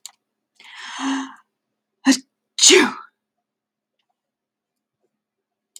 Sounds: Sneeze